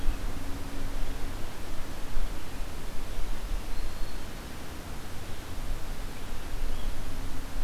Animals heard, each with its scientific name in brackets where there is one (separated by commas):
Red-eyed Vireo (Vireo olivaceus), Black-throated Green Warbler (Setophaga virens)